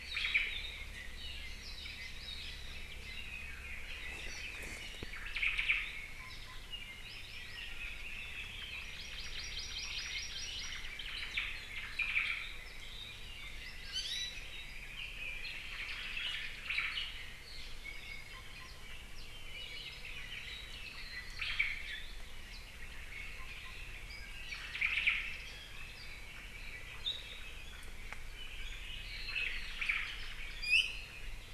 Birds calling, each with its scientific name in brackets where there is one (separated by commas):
Apapane (Himatione sanguinea), Hawaii Amakihi (Chlorodrepanis virens), Red-billed Leiothrix (Leiothrix lutea), Iiwi (Drepanis coccinea), Omao (Myadestes obscurus)